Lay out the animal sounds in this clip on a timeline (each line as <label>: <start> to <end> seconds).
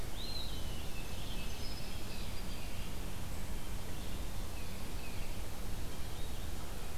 Eastern Wood-Pewee (Contopus virens): 0.0 to 1.5 seconds
Winter Wren (Troglodytes hiemalis): 0.8 to 2.8 seconds
Tufted Titmouse (Baeolophus bicolor): 1.2 to 2.4 seconds